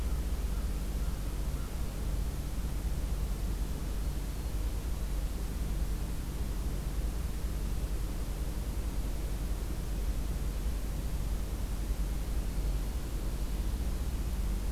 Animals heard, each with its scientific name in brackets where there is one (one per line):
American Crow (Corvus brachyrhynchos)